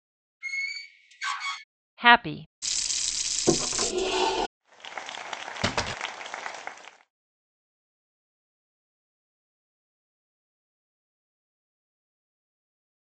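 First, the sound of a door is heard. After that, someone says "happy". Next, a water tap can be heard. While that goes on, metal furniture moving is audible. Afterwards, applause fades in and then fades out. Over it, an object falls.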